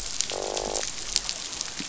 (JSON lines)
{"label": "biophony, croak", "recorder": "SoundTrap 500"}